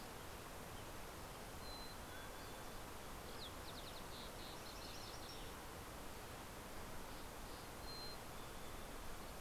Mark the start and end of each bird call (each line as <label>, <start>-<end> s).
Mountain Chickadee (Poecile gambeli), 1.5-2.9 s
Mountain Quail (Oreortyx pictus), 1.8-2.9 s
Green-tailed Towhee (Pipilo chlorurus), 2.7-6.1 s
Mountain Chickadee (Poecile gambeli), 7.6-9.3 s